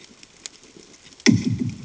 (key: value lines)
label: anthrophony, bomb
recorder: HydroMoth